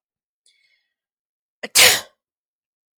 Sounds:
Sneeze